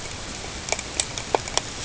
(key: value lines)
label: ambient
recorder: HydroMoth